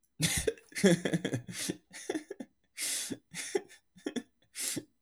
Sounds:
Laughter